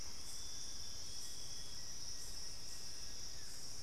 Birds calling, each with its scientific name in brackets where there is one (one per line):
Plain-winged Antshrike (Thamnophilus schistaceus)